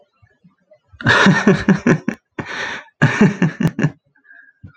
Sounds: Laughter